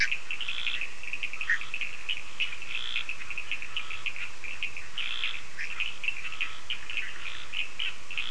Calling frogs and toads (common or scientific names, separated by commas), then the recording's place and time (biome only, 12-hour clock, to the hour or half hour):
Scinax perereca, Cochran's lime tree frog, Bischoff's tree frog
Atlantic Forest, 10:30pm